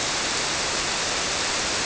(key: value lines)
label: biophony
recorder: SoundTrap 300